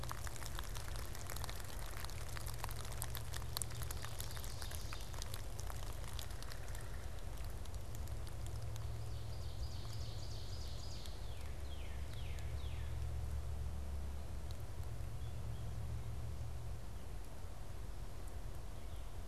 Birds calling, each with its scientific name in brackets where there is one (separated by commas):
Northern Cardinal (Cardinalis cardinalis), Ovenbird (Seiurus aurocapilla), American Crow (Corvus brachyrhynchos)